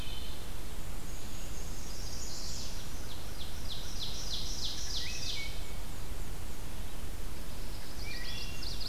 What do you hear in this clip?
Wood Thrush, Red-eyed Vireo, Black-and-white Warbler, Chestnut-sided Warbler, Ovenbird